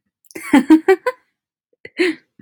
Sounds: Laughter